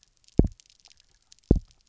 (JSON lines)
{"label": "biophony, double pulse", "recorder": "SoundTrap 300"}